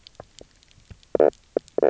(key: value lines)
label: biophony, knock croak
recorder: SoundTrap 300